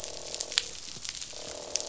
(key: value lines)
label: biophony, croak
recorder: SoundTrap 500